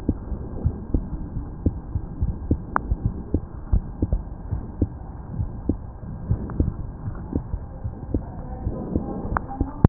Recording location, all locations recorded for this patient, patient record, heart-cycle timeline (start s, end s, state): aortic valve (AV)
aortic valve (AV)+pulmonary valve (PV)+tricuspid valve (TV)+mitral valve (MV)
#Age: Child
#Sex: Female
#Height: 126.0 cm
#Weight: 24.4 kg
#Pregnancy status: False
#Murmur: Absent
#Murmur locations: nan
#Most audible location: nan
#Systolic murmur timing: nan
#Systolic murmur shape: nan
#Systolic murmur grading: nan
#Systolic murmur pitch: nan
#Systolic murmur quality: nan
#Diastolic murmur timing: nan
#Diastolic murmur shape: nan
#Diastolic murmur grading: nan
#Diastolic murmur pitch: nan
#Diastolic murmur quality: nan
#Outcome: Normal
#Campaign: 2015 screening campaign
0.00	4.48	unannotated
4.48	4.62	S1
4.62	4.78	systole
4.78	4.92	S2
4.92	5.38	diastole
5.38	5.52	S1
5.52	5.66	systole
5.66	5.80	S2
5.80	6.28	diastole
6.28	6.42	S1
6.42	6.54	systole
6.54	6.70	S2
6.70	7.06	diastole
7.06	7.16	S1
7.16	7.32	systole
7.32	7.44	S2
7.44	7.82	diastole
7.82	7.94	S1
7.94	8.12	systole
8.12	8.24	S2
8.24	8.64	diastole
8.64	8.78	S1
8.78	8.92	systole
8.92	9.04	S2
9.04	9.25	diastole
9.25	9.39	S1
9.39	9.58	systole
9.58	9.68	S2
9.68	9.89	unannotated